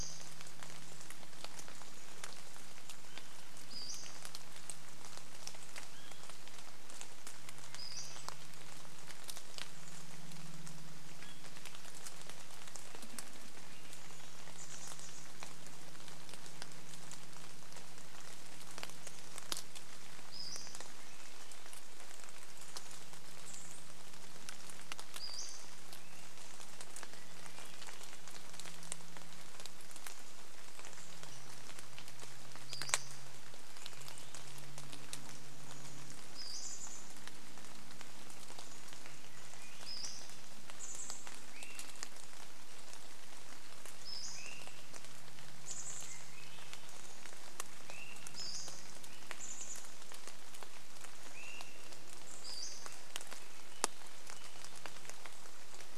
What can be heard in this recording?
Pacific-slope Flycatcher call, airplane, rain, Swainson's Thrush call, Swainson's Thrush song, Chestnut-backed Chickadee call, vehicle engine